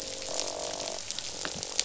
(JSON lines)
{"label": "biophony, croak", "recorder": "SoundTrap 500"}